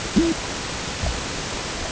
{"label": "ambient", "recorder": "HydroMoth"}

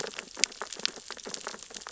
{"label": "biophony, sea urchins (Echinidae)", "recorder": "SoundTrap 600 or HydroMoth"}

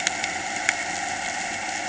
{"label": "anthrophony, boat engine", "recorder": "HydroMoth"}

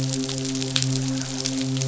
{"label": "biophony, midshipman", "recorder": "SoundTrap 500"}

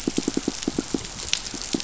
{"label": "biophony, pulse", "recorder": "SoundTrap 500"}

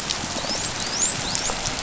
{"label": "biophony, dolphin", "recorder": "SoundTrap 500"}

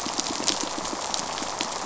{"label": "biophony, pulse", "recorder": "SoundTrap 500"}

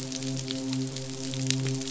{"label": "biophony, midshipman", "recorder": "SoundTrap 500"}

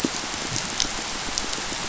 {"label": "biophony, pulse", "recorder": "SoundTrap 500"}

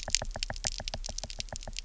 {"label": "biophony, knock", "recorder": "SoundTrap 300"}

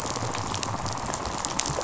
{"label": "biophony, rattle response", "recorder": "SoundTrap 500"}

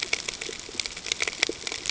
{"label": "ambient", "recorder": "HydroMoth"}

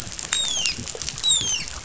{"label": "biophony, dolphin", "recorder": "SoundTrap 500"}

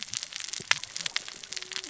{"label": "biophony, cascading saw", "recorder": "SoundTrap 600 or HydroMoth"}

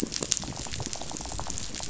{"label": "biophony, rattle", "recorder": "SoundTrap 500"}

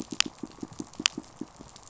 {"label": "biophony", "recorder": "SoundTrap 500"}
{"label": "biophony, pulse", "recorder": "SoundTrap 500"}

